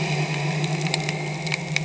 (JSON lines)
{"label": "anthrophony, boat engine", "recorder": "HydroMoth"}